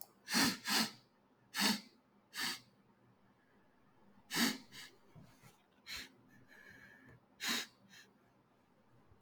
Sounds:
Sniff